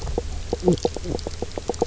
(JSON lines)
{"label": "biophony, knock croak", "recorder": "SoundTrap 300"}